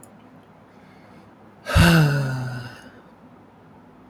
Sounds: Sigh